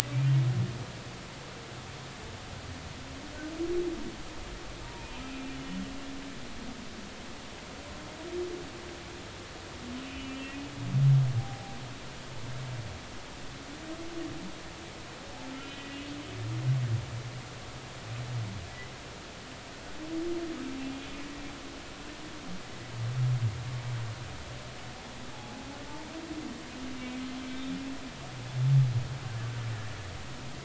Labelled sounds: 4.8	5.8	humpback whale, 0.90 to 3.0 kHz
10.0	10.4	humpback whale, 2.6 to 3.1 kHz
11.4	11.8	humpback whale, 0.80 to 0.83 kHz
15.5	16.0	humpback whale, 1.9 to 3.1 kHz
25.3	25.7	humpback whale, 0.80 to 0.90 kHz

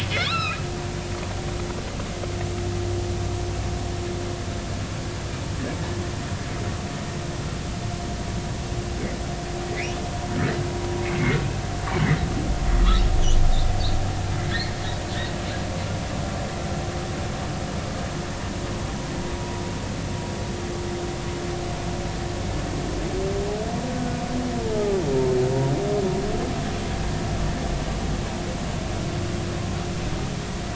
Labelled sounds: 11.0	11.4	humpback whale, 2.0 to 2.8 kHz
19.4	19.6	humpback whale, 0.93 to 1.0 kHz
23.9	25.0	humpback whale, 0.80 to 1.5 kHz

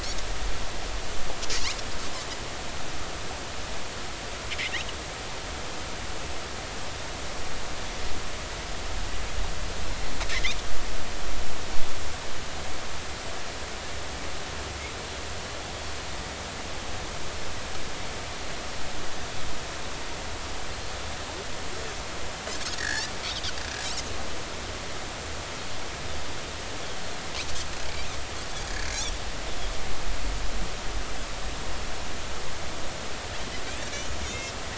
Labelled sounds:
9.9	10.2	Pacific white-sided dolphin, 4.0 to 4.3 kHz
21.7	23.1	Pacific white-sided dolphin, 1.4 to 5.5 kHz
33.9	34.5	Pacific white-sided dolphin, 2.0 to 6.9 kHz

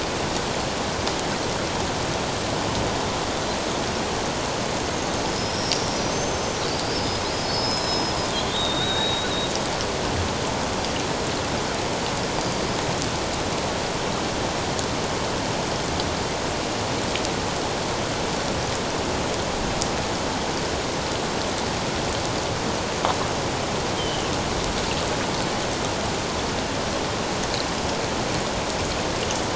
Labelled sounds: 4.9	5.7	killer whale, Bigg's (transient), 5.1 to 6.5 kHz
6.1	6.6	killer whale, Bigg's (transient), 6.0 to 6.3 kHz
7.2	9.5	killer whale, Bigg's (transient), 3.2 to 5.2 kHz
12.4	12.6	killer whale, Bigg's (transient), 4.7 to 4.9 kHz
23.9	24.3	killer whale, Bigg's (transient), 2.5 to 3.3 kHz

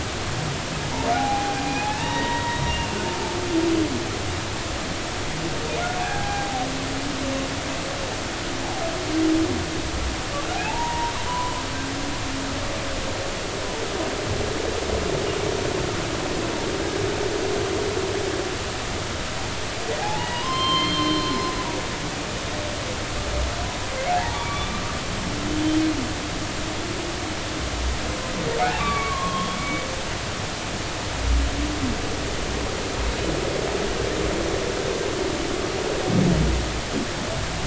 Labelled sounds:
1.1	1.6	humpback whale, 0.80 to 0.86 kHz
1.8	3.0	humpback whale, 0.80 to 3.8 kHz
6.0	6.7	humpback whale, 0.80 to 1.7 kHz
10.6	11.5	humpback whale, 0.80 to 1.1 kHz
20.0	21.3	humpback whale, 0.80 to 4.3 kHz
24.1	24.7	humpback whale, 0.80 to 2.4 kHz
28.6	29.8	humpback whale, 0.80 to 3.4 kHz

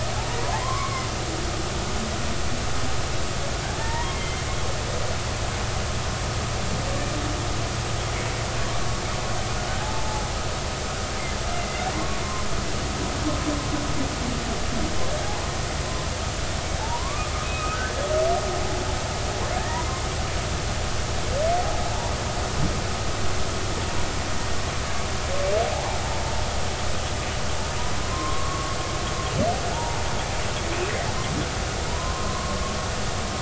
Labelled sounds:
0.4	1.1	humpback whale, 0.93 to 2.3 kHz
3.8	4.4	humpback whale, 0.86 to 3.2 kHz
9.8	10.2	humpback whale, 0.80 to 0.93 kHz
11.5	11.9	humpback whale, 2.0 to 2.1 kHz
16.8	17.9	humpback whale, 0.80 to 2.6 kHz
19.6	19.9	humpback whale, 1.6 to 2.0 kHz
25.7	26.0	humpback whale, 0.80 to 1.1 kHz
28.0	28.8	humpback whale, 0.96 to 1.2 kHz
29.7	30.0	humpback whale, 0.80 to 0.99 kHz
31.9	32.6	humpback whale, 0.86 to 1.1 kHz

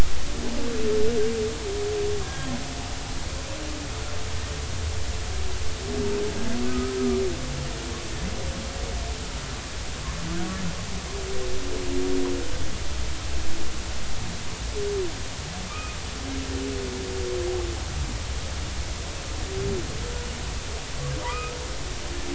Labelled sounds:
2.2	2.5	humpback whale, 1.6 to 1.7 kHz
6.6	6.9	humpback whale, 1.2 to 1.3 kHz
15.7	16.0	humpback whale, 1.1 to 2.6 kHz
21.3	21.6	humpback whale, 1.1 to 1.3 kHz

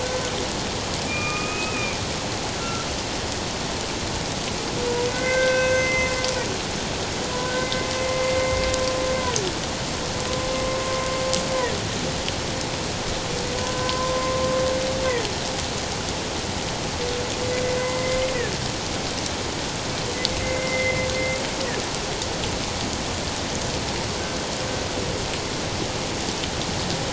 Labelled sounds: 1.0	2.0	humpback whale, 1.2 to 2.6 kHz
2.6	2.9	humpback whale, 1.3 to 1.4 kHz
5.1	6.1	humpback whale, 1.4 to 6.2 kHz
7.6	7.9	humpback whale, 2.0 to 2.1 kHz
13.6	14.4	humpback whale, 0.91 to 1.6 kHz
17.8	18.2	humpback whale, 0.97 to 2.1 kHz
20.4	21.1	humpback whale, 2.0 to 2.2 kHz

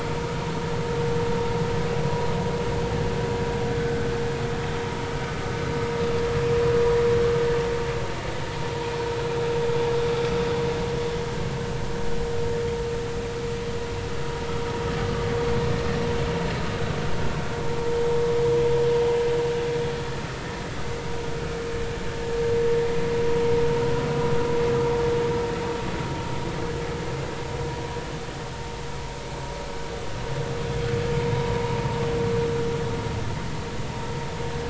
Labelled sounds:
31.3	31.6	vessel noise, 0.93 to 1.0 kHz

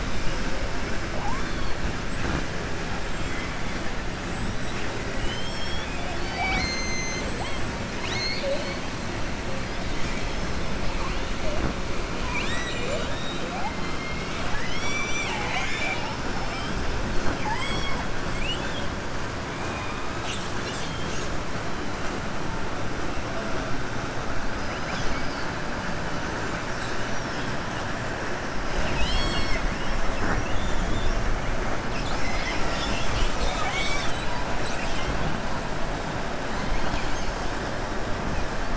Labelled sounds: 7.9	8.8	killer whale, southern resident, 0.57 to 6.7 kHz
12.2	13.5	killer whale, southern resident, 0.50 to 7.8 kHz
13.8	16.1	killer whale, southern resident, 0.75 to 7.9 kHz
18.3	18.9	killer whale, southern resident, 1.8 to 3.6 kHz
27.0	27.5	killer whale, southern resident, 4.6 to 6.2 kHz

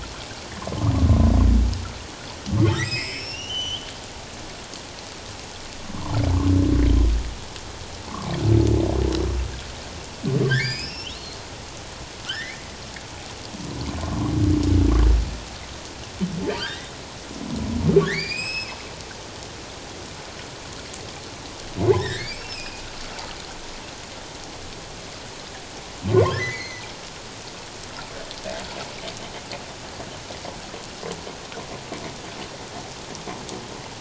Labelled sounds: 2.7	3.9	humpback whale, 1.8 to 7.7 kHz
10.4	11.4	humpback whale, 1.5 to 5.5 kHz
12.3	12.6	humpback whale, 1.3 to 2.5 kHz
14.0	14.3	humpback whale, 0.91 to 1.2 kHz
16.5	16.9	humpback whale, 1.4 to 3.9 kHz
18.0	18.8	humpback whale, 1.4 to 7.8 kHz
22.0	22.8	humpback whale, 1.5 to 5.5 kHz
26.1	26.9	humpback whale, 0.88 to 6.4 kHz

